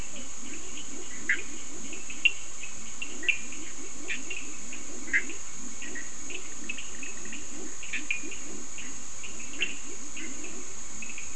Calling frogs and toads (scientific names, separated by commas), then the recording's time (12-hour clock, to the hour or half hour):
Physalaemus cuvieri, Leptodactylus latrans, Sphaenorhynchus surdus, Boana bischoffi
~4am